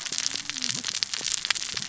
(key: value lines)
label: biophony, cascading saw
recorder: SoundTrap 600 or HydroMoth